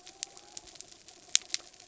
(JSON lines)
{"label": "biophony", "recorder": "SoundTrap 300"}
{"label": "anthrophony, mechanical", "recorder": "SoundTrap 300"}